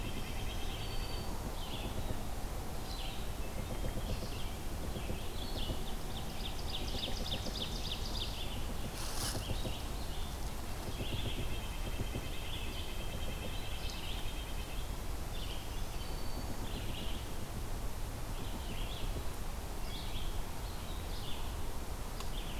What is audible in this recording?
Red-breasted Nuthatch, Black-throated Green Warbler, Red-eyed Vireo, Ovenbird